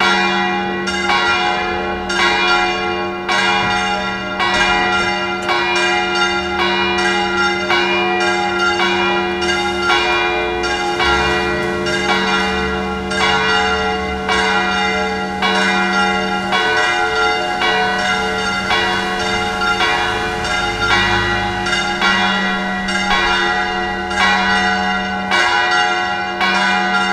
do any people talk?
no